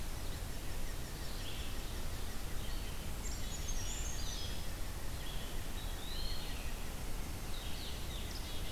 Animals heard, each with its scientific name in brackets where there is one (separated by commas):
Brown Creeper (Certhia americana), Black-capped Chickadee (Poecile atricapillus), Eastern Wood-Pewee (Contopus virens), unidentified call, Red-eyed Vireo (Vireo olivaceus)